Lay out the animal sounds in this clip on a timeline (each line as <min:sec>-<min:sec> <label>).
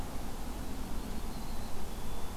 0:01.2-0:02.4 Black-capped Chickadee (Poecile atricapillus)